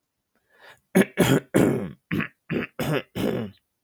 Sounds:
Throat clearing